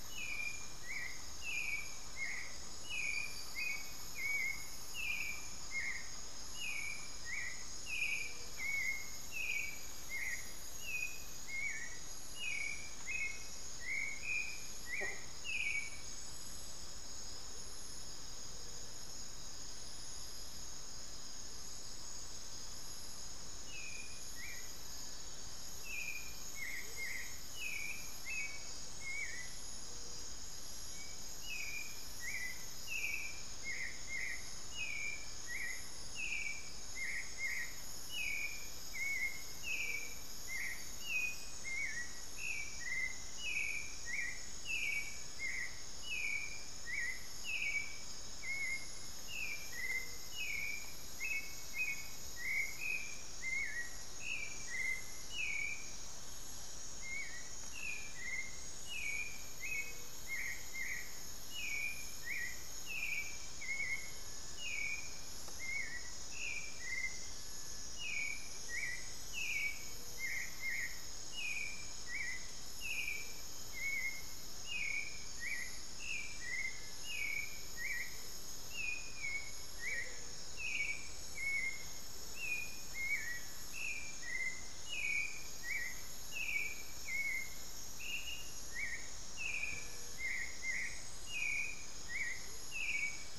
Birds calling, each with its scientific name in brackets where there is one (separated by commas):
Cinereous Tinamou (Crypturellus cinereus), Gray-fronted Dove (Leptotila rufaxilla), Hauxwell's Thrush (Turdus hauxwelli), Amazonian Motmot (Momotus momota)